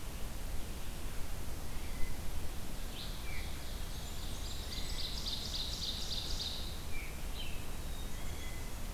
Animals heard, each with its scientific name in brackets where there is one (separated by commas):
Veery (Catharus fuscescens), Black-capped Chickadee (Poecile atricapillus), Blackburnian Warbler (Setophaga fusca), Ovenbird (Seiurus aurocapilla)